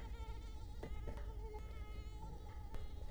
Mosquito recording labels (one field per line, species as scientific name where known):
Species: Culex quinquefasciatus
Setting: cup